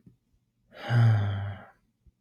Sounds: Sigh